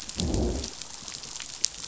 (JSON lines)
{"label": "biophony, growl", "recorder": "SoundTrap 500"}